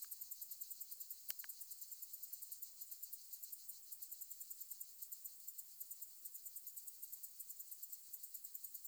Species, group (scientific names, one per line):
Decticus albifrons
Orthoptera